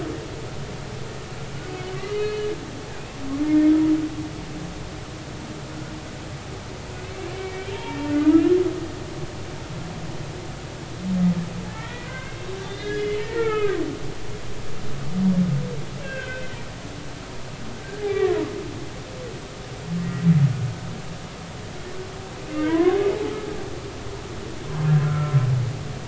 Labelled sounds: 2.1	3.2	humpback whale, 2.0 to 4.3 kHz
7.3	8.6	humpback whale, 0.86 to 2.5 kHz
11.7	13.8	humpback whale, 0.83 to 3.8 kHz
16.0	16.6	humpback whale, 1.5 to 3.6 kHz
18.0	18.4	humpback whale, 1.0 to 2.4 kHz
22.5	23.0	humpback whale, 0.93 to 2.3 kHz
25.0	25.5	humpback whale, 1.2 to 1.5 kHz

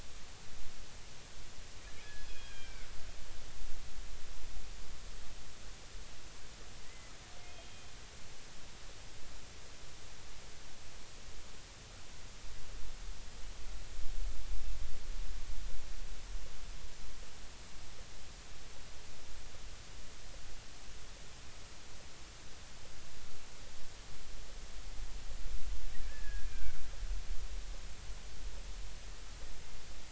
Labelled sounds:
2.0	2.9	killer whale, 1.5 to 3.4 kHz
6.8	7.9	killer whale, 1.8 to 3.3 kHz
26.0	26.8	killer whale, 1.3 to 1.8 kHz

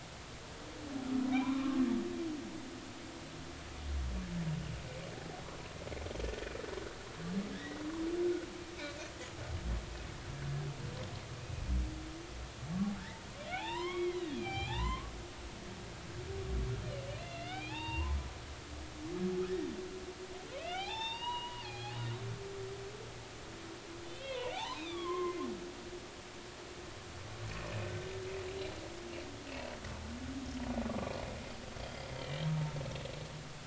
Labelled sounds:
1.3	1.6	humpback whale, 2.2 to 2.5 kHz
7.5	7.8	humpback whale, 1.6 to 2.0 kHz
13.5	15.1	humpback whale, 0.80 to 7.3 kHz
15.7	16.0	humpback whale, 1.7 to 2.2 kHz
17.2	18.2	humpback whale, 0.80 to 4.2 kHz
20.5	22.0	humpback whale, 0.80 to 5.6 kHz
24.0	25.4	humpback whale, 0.80 to 4.0 kHz
29.5	29.7	humpback whale, 2.5 to 2.7 kHz
31.8	32.4	humpback whale, 2.8 to 3.4 kHz

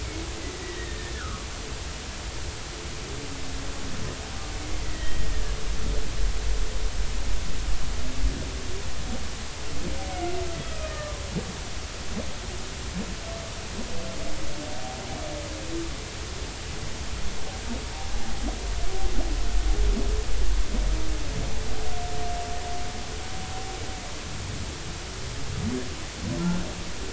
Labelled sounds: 0.6	1.5	humpback whale, 1.1 to 2.0 kHz
4.8	5.3	humpback whale, 1.8 to 2.0 kHz
10.1	10.3	humpback whale, 2.0 to 2.3 kHz
10.6	11.2	humpback whale, 1.2 to 1.9 kHz

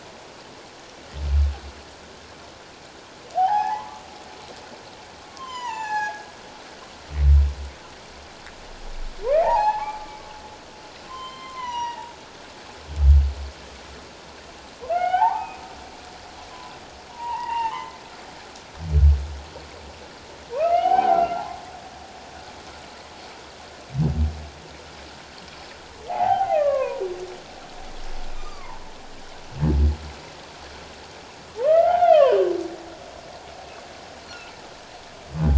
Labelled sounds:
3.3	4.0	humpback whale, 0.78 to 1.9 kHz
5.3	6.3	humpback whale, 0.78 to 8.0 kHz
9.3	10.0	humpback whale, 0.78 to 2.6 kHz
11.0	12.1	humpback whale, 0.84 to 5.9 kHz
14.9	15.6	humpback whale, 0.78 to 3.2 kHz
17.1	18.0	humpback whale, 0.81 to 3.0 kHz
20.5	21.5	humpback whale, 0.78 to 3.2 kHz
26.1	27.1	humpback whale, 0.78 to 2.9 kHz
28.3	28.8	humpback whale, 0.81 to 1.3 kHz
31.6	32.4	humpback whale, 0.78 to 3.6 kHz

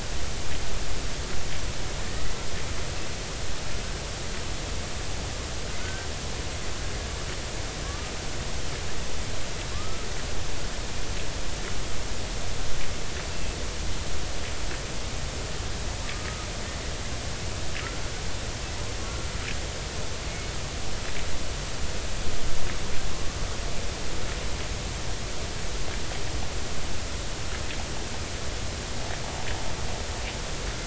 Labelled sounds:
5.8	6.1	killer whale, Bigg's (transient), 1.4 to 1.6 kHz
7.8	8.1	killer whale, Bigg's (transient), 1.1 to 1.3 kHz
9.7	10.0	killer whale, Bigg's (transient), 1.0 to 1.3 kHz
16.0	16.5	killer whale, Bigg's (transient), 1.2 to 1.3 kHz
20.3	20.5	killer whale, Bigg's (transient), 2.1 to 2.3 kHz

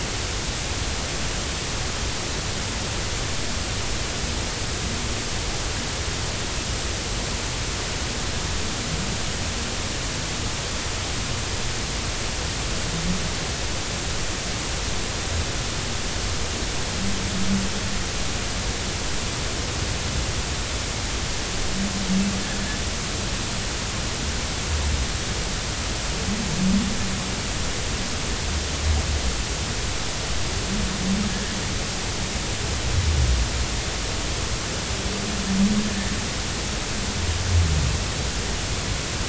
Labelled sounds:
31.3	31.6	humpback whale, 1.6 to 1.8 kHz

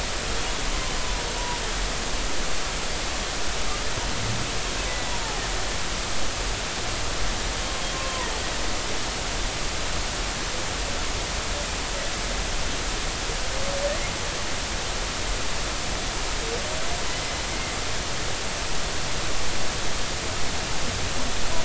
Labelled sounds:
0.3	0.6	humpback whale, 3.2 to 3.5 kHz
4.9	5.2	humpback whale, 1.9 to 2.0 kHz
7.9	8.3	humpback whale, 0.93 to 1.1 kHz

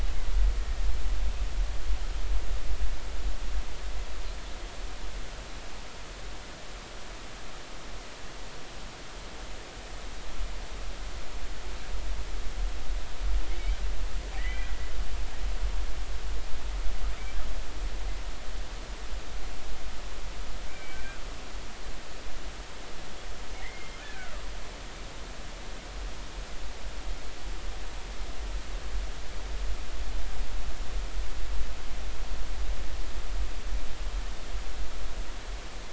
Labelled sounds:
14.4	14.8	killer whale, Bigg's (transient), 1.8 to 2.5 kHz
20.7	21.2	killer whale, Bigg's (transient), 1.5 to 2.5 kHz
23.5	24.0	killer whale, Bigg's (transient), 1.8 to 2.3 kHz

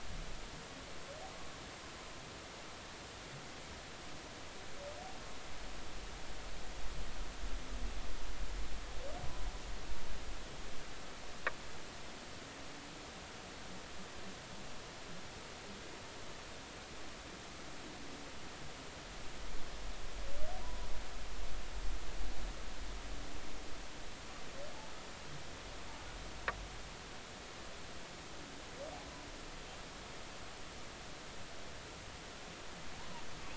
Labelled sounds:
20.6	20.9	humpback whale, 0.93 to 1.1 kHz

